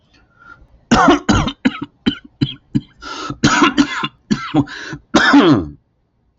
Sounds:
Cough